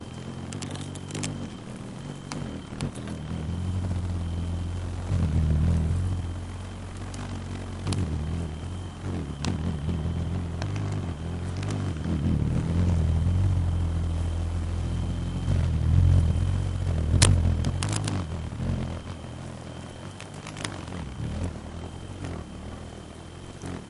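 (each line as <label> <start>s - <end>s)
A constant low-pitched buzz of an insect flying. 0.0s - 23.9s
Crickets chirping repeatedly in the distance. 0.0s - 23.9s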